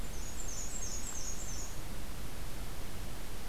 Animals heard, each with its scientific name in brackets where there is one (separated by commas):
Black-and-white Warbler (Mniotilta varia)